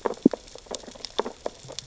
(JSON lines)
{"label": "biophony, sea urchins (Echinidae)", "recorder": "SoundTrap 600 or HydroMoth"}